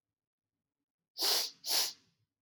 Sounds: Sniff